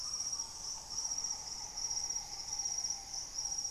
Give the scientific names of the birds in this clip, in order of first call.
Mesembrinibis cayennensis, Hemitriccus griseipectus, Legatus leucophaius